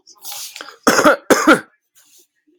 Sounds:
Cough